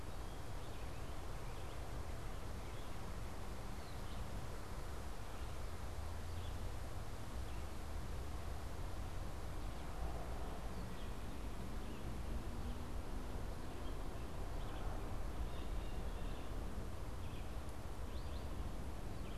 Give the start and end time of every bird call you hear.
[0.00, 19.37] Red-eyed Vireo (Vireo olivaceus)
[15.27, 16.57] Blue Jay (Cyanocitta cristata)

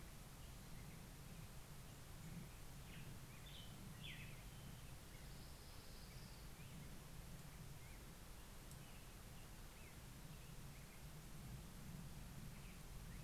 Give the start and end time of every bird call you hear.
[0.00, 13.18] Black-headed Grosbeak (Pheucticus melanocephalus)
[1.88, 5.08] American Robin (Turdus migratorius)
[4.88, 7.08] Orange-crowned Warbler (Leiothlypis celata)

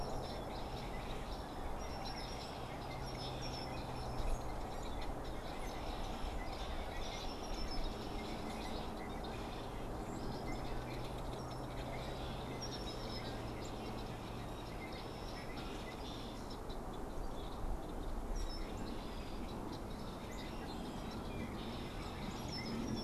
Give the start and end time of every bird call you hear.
[0.00, 15.07] unidentified bird
[0.00, 23.04] Red-winged Blackbird (Agelaius phoeniceus)

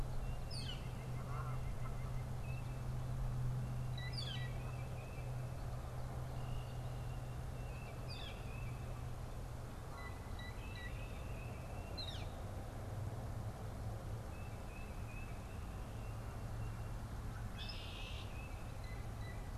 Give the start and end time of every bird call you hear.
[0.00, 12.70] Northern Flicker (Colaptes auratus)
[0.40, 2.40] White-breasted Nuthatch (Sitta carolinensis)
[4.70, 19.50] Tufted Titmouse (Baeolophus bicolor)
[17.20, 18.60] Red-winged Blackbird (Agelaius phoeniceus)

